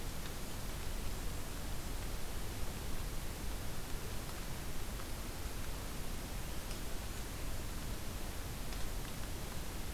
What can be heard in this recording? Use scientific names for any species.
Regulus satrapa